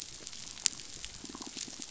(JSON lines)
{"label": "biophony", "recorder": "SoundTrap 500"}